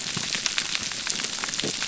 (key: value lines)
label: biophony
recorder: SoundTrap 300